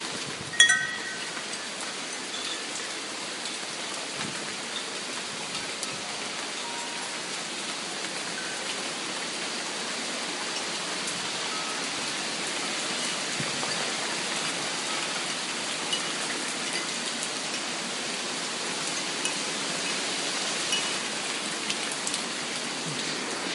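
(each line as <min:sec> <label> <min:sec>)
0:00.0 Faint wind chimes in the distance. 0:23.5
0:00.0 Loud rain pouring continuously. 0:23.5
0:00.5 A strong chime jingle sounds. 0:01.0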